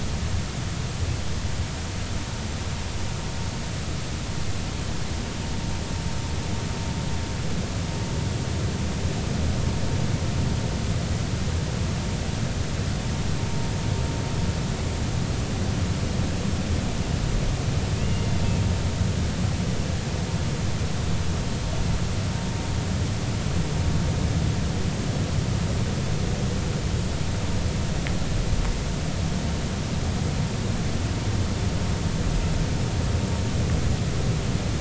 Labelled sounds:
18.0	18.3	vessel noise, 2.5 to 2.9 kHz

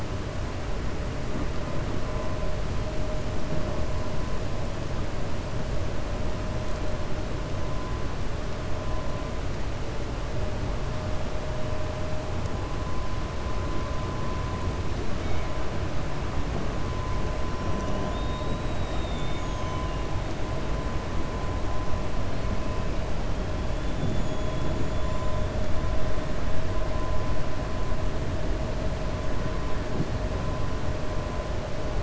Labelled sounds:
18.0	19.9	killer whale, 2.2 to 3.9 kHz
24.9	25.3	killer whale, 6.8 to 7.2 kHz

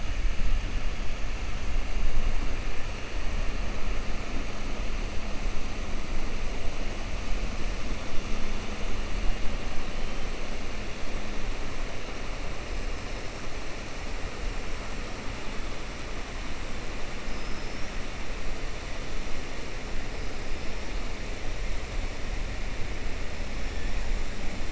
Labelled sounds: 17.2	17.9	killer whale, 5.1 to 5.7 kHz

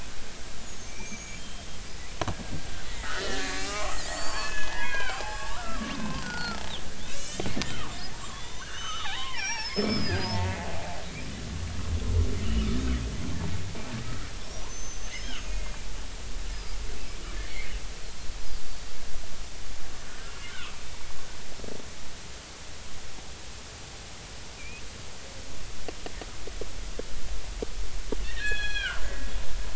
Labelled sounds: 0.6	1.7	killer whale, Bigg's (transient), 2.3 to 7.1 kHz
3.0	6.6	killer whale, Bigg's (transient), 0.80 to 6.0 kHz
7.1	7.5	killer whale, Bigg's (transient), 2.2 to 5.4 kHz
8.3	10.8	killer whale, Bigg's (transient), 0.80 to 6.3 kHz
12.4	12.7	killer whale, Bigg's (transient), 2.7 to 3.0 kHz
14.4	15.7	killer whale, Bigg's (transient), 2.6 to 6.6 kHz
16.5	16.8	killer whale, Bigg's (transient), 4.8 to 5.1 kHz
17.5	17.7	killer whale, Bigg's (transient), 2.0 to 2.3 kHz
18.6	18.9	killer whale, Bigg's (transient), 4.5 to 4.6 kHz
20.5	20.8	killer whale, Bigg's (transient), 0.99 to 1.6 kHz
24.5	24.8	killer whale, Bigg's (transient), 2.2 to 2.7 kHz
28.2	29.3	killer whale, Bigg's (transient), 1.3 to 5.9 kHz

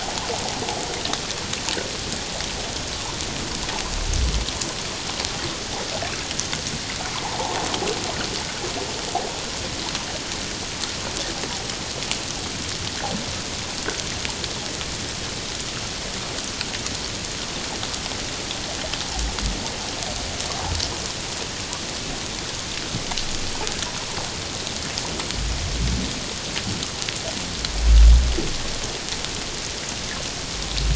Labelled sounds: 7.2	7.5	water noise, 0.78 to 1.1 kHz

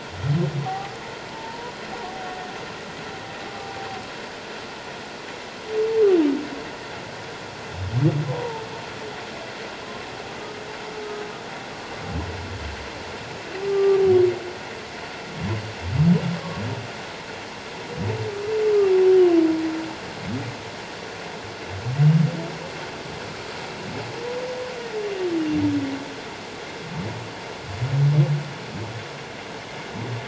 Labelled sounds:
0.6	1.7	humpback whale, 0.78 to 1.2 kHz
3.4	3.7	humpback whale, 1.16 to 1.25 kHz
10.4	10.6	humpback whale, 1.2 to 1.3 kHz
13.7	14.0	humpback whale, 1.1 to 1.2 kHz

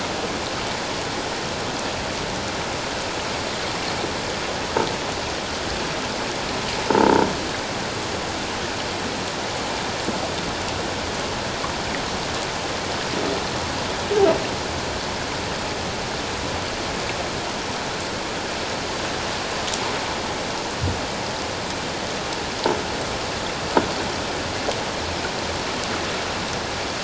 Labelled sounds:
6.9	7.3	croaking sound likely from a nearby submerged object, 0.84 to 0.97 kHz

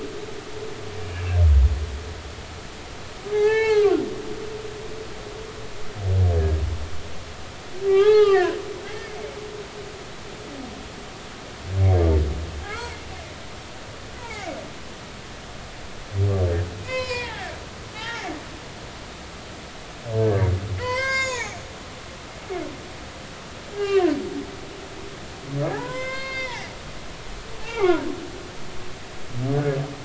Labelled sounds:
1.0	1.4	humpback whale, 2.5 to 2.9 kHz
3.3	4.0	humpback whale, 0.80 to 4.5 kHz
7.9	8.5	humpback whale, 0.80 to 3.9 kHz
12.7	12.9	humpback whale, 1.2 to 2.4 kHz
14.2	14.6	humpback whale, 0.80 to 2.4 kHz
16.8	18.3	humpback whale, 0.80 to 5.7 kHz
20.2	20.5	humpback whale, 1.5 to 1.7 kHz
20.8	21.6	humpback whale, 0.80 to 8.0 kHz
23.7	24.1	humpback whale, 0.96 to 2.0 kHz
25.7	28.0	humpback whale, 0.80 to 6.4 kHz

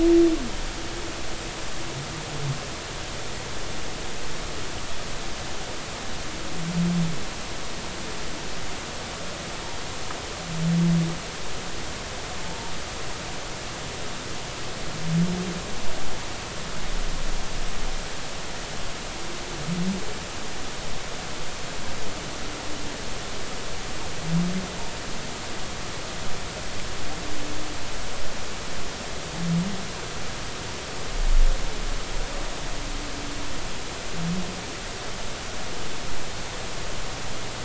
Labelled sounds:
12.4	12.7	humpback whale, 0.86 to 0.99 kHz

